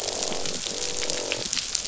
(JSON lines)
{"label": "biophony, croak", "recorder": "SoundTrap 500"}